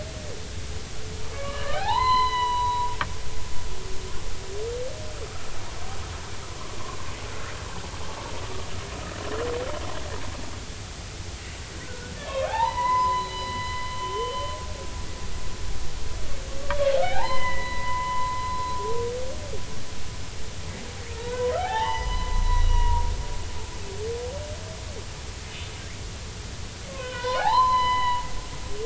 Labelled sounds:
1.3	2.9	humpback whale, 0.80 to 4.2 kHz
11.8	12.1	humpback whale, 1.4 to 1.6 kHz
12.5	14.5	humpback whale, 0.80 to 4.1 kHz
16.6	18.6	humpback whale, 0.80 to 4.2 kHz
21.2	23.1	humpback whale, 0.80 to 5.9 kHz
26.9	28.3	humpback whale, 0.80 to 4.2 kHz

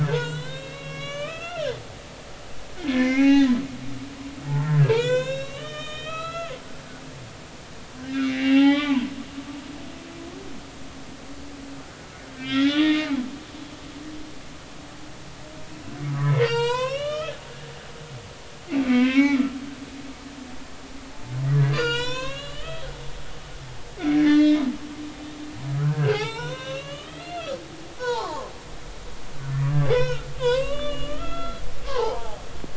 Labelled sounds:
0.0	3.5	humpback whale, 0.80 to 5.8 kHz
4.5	6.5	humpback whale, 0.80 to 7.2 kHz
8.0	9.1	humpback whale, 0.80 to 3.8 kHz
12.4	13.1	humpback whale, 1.1 to 4.2 kHz
16.1	17.3	humpback whale, 0.86 to 8.0 kHz
18.8	19.5	humpback whale, 0.96 to 6.0 kHz
21.7	22.9	humpback whale, 0.90 to 7.6 kHz
24.0	24.7	humpback whale, 1.6 to 4.6 kHz
25.7	27.6	humpback whale, 0.80 to 5.8 kHz
28.0	28.5	humpback whale, 0.80 to 1.6 kHz
29.9	32.4	humpback whale, 0.80 to 5.7 kHz

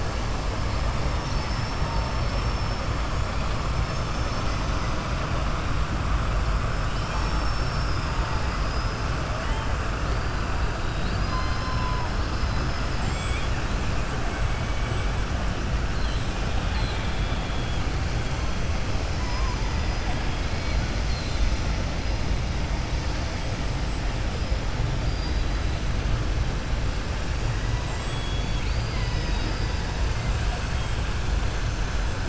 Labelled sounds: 8.2	9.0	killer whale, southern resident, 4.3 to 5.9 kHz
16.5	17.8	killer whale, southern resident, 1.8 to 4.5 kHz
19.0	19.6	killer whale, southern resident, 4.3 to 6.3 kHz
21.0	21.6	killer whale, southern resident, 3.5 to 5.8 kHz
27.8	29.8	killer whale, southern resident, 0.97 to 8.0 kHz

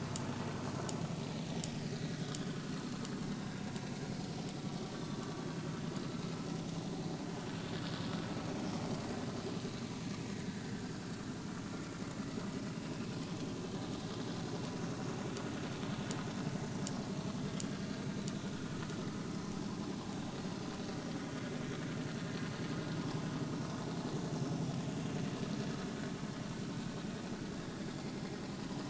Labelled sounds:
10.4	10.9	vessel noise, 1.5 to 1.9 kHz

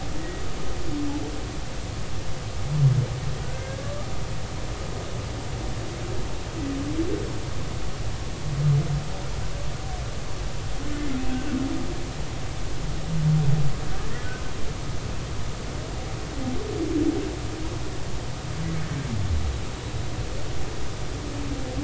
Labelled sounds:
0.2	0.4	humpback whale, 1.9 to 2.0 kHz
3.4	4.1	humpback whale, 1.1 to 1.8 kHz
11.3	11.5	humpback whale, 1.4 to 1.6 kHz

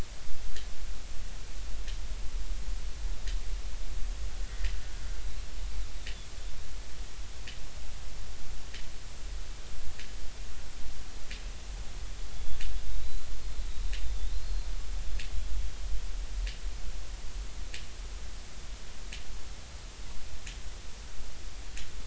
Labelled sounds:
4.4	4.7	killer whale, Bigg's (transient), 1.8 to 2.1 kHz
12.3	14.7	killer whale, Bigg's (transient), 3.4 to 4.4 kHz

